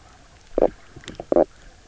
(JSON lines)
{"label": "biophony, knock croak", "recorder": "SoundTrap 300"}